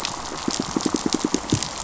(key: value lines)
label: biophony, pulse
recorder: SoundTrap 500